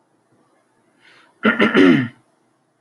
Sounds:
Throat clearing